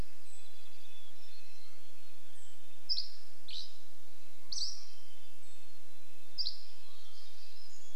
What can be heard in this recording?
Mountain Chickadee song, warbler song, Dark-eyed Junco call, Red-breasted Nuthatch song, Dusky Flycatcher song, Mountain Quail call